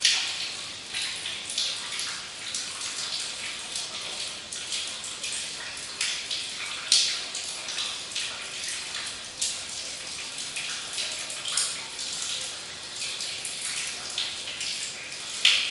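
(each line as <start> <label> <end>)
0.0 Water trickling down into a puddle, echoing in a cave or similar enclosed space. 15.7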